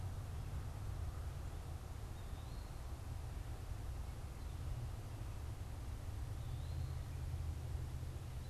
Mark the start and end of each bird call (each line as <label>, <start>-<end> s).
Eastern Wood-Pewee (Contopus virens), 0.0-8.5 s